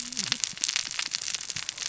{"label": "biophony, cascading saw", "recorder": "SoundTrap 600 or HydroMoth"}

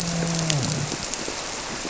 {"label": "biophony, grouper", "recorder": "SoundTrap 300"}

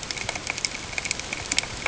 {"label": "ambient", "recorder": "HydroMoth"}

